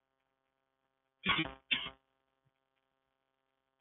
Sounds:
Cough